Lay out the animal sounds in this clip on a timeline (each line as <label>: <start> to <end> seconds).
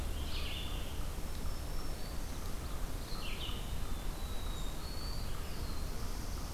American Robin (Turdus migratorius): 0.0 to 0.8 seconds
Red-eyed Vireo (Vireo olivaceus): 0.0 to 3.7 seconds
Black-throated Green Warbler (Setophaga virens): 1.0 to 2.6 seconds
Black-throated Blue Warbler (Setophaga caerulescens): 3.5 to 6.5 seconds
unknown mammal: 3.8 to 6.5 seconds